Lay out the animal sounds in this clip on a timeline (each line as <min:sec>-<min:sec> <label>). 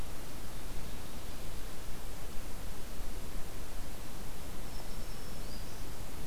0:04.6-0:05.8 Black-throated Green Warbler (Setophaga virens)